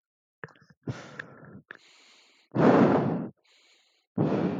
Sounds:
Sigh